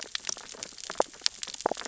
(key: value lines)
label: biophony, sea urchins (Echinidae)
recorder: SoundTrap 600 or HydroMoth